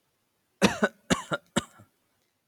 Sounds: Cough